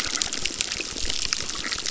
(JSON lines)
{"label": "biophony, crackle", "recorder": "SoundTrap 600"}